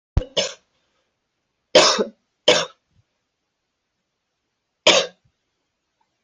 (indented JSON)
{
  "expert_labels": [
    {
      "quality": "good",
      "cough_type": "dry",
      "dyspnea": false,
      "wheezing": false,
      "stridor": false,
      "choking": false,
      "congestion": false,
      "nothing": true,
      "diagnosis": "upper respiratory tract infection",
      "severity": "mild"
    }
  ],
  "age": 34,
  "gender": "male",
  "respiratory_condition": false,
  "fever_muscle_pain": false,
  "status": "symptomatic"
}